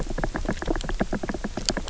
{"label": "biophony", "recorder": "SoundTrap 300"}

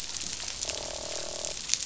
{"label": "biophony, croak", "recorder": "SoundTrap 500"}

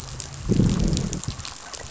{"label": "biophony, growl", "recorder": "SoundTrap 500"}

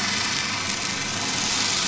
{"label": "anthrophony, boat engine", "recorder": "SoundTrap 500"}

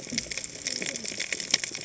{"label": "biophony, cascading saw", "recorder": "HydroMoth"}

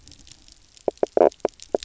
{"label": "biophony, knock croak", "recorder": "SoundTrap 300"}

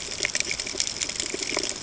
{"label": "ambient", "recorder": "HydroMoth"}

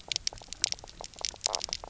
{"label": "biophony, knock croak", "recorder": "SoundTrap 300"}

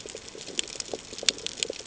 {"label": "ambient", "recorder": "HydroMoth"}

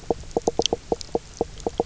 {"label": "biophony, knock croak", "recorder": "SoundTrap 300"}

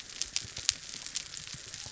{"label": "biophony", "recorder": "SoundTrap 300"}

